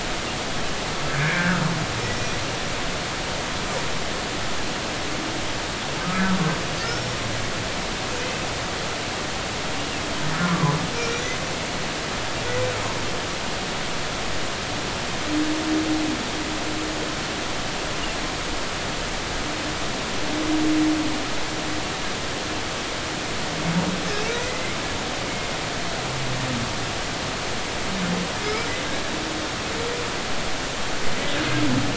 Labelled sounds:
1.1	1.6	humpback whale, 1.2 to 2.5 kHz
2.1	2.4	humpback whale, 5.8 to 6.0 kHz
6.0	7.2	humpback whale, 1.2 to 5.6 kHz
10.4	11.4	humpback whale, 0.96 to 6.3 kHz
24.3	24.8	humpback whale, 1.9 to 2.2 kHz
28.4	28.7	humpback whale, 2.1 to 2.4 kHz

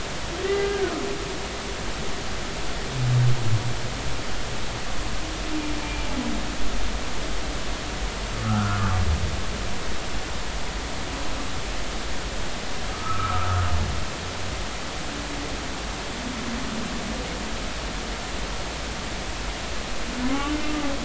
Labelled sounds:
0.4	0.8	humpback whale, 1.5 to 2.1 kHz
8.4	8.8	humpback whale, 0.99 to 1.6 kHz
12.9	13.5	humpback whale, 1.1 to 1.4 kHz
20.3	20.6	humpback whale, 1.0 to 1.2 kHz

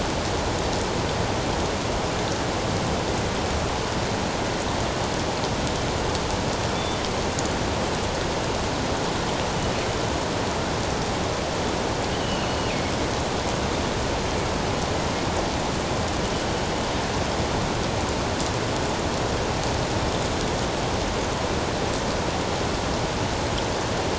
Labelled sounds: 12.1	12.6	killer whale, northern resident, G clan, 2.5 to 4.4 kHz

